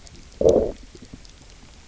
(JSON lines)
{"label": "biophony, low growl", "recorder": "SoundTrap 300"}